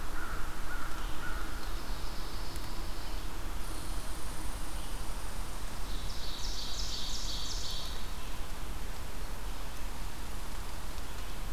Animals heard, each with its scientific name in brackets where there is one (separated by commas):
Ovenbird (Seiurus aurocapilla), Red-eyed Vireo (Vireo olivaceus), Pine Warbler (Setophaga pinus), Red Squirrel (Tamiasciurus hudsonicus), American Crow (Corvus brachyrhynchos)